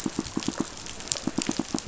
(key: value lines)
label: biophony, pulse
recorder: SoundTrap 500